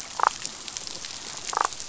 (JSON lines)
{"label": "biophony, damselfish", "recorder": "SoundTrap 500"}